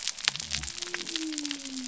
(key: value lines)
label: biophony
recorder: SoundTrap 300